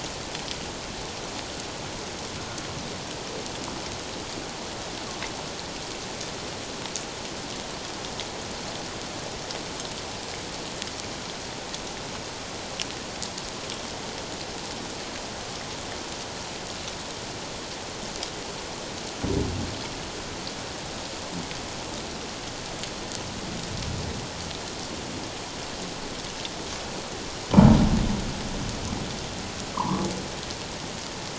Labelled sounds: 29.7	30.1	humpback whale, 0.81 to 1.2 kHz

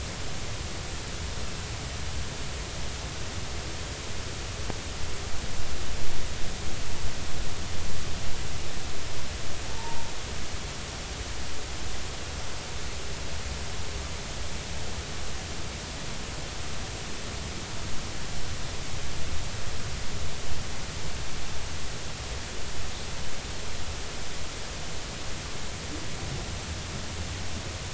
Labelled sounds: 9.7	10.1	humpback whale, 0.86 to 1.0 kHz

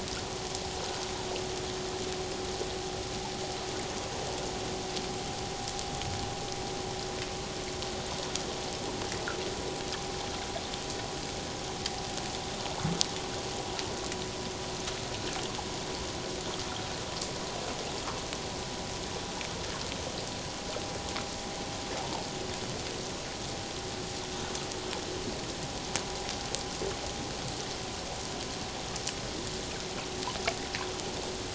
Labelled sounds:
22.0	22.3	humpback whale, 0.84 to 0.97 kHz

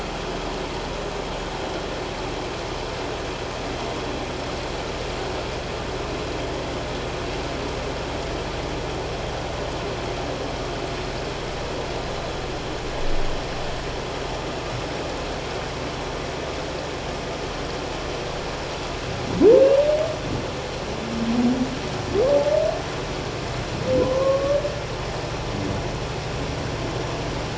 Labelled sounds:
24.0	24.6	humpback whale, 0.94 to 1.2 kHz

